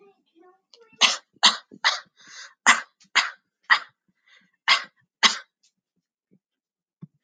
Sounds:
Cough